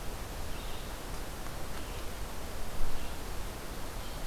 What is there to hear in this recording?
Red-eyed Vireo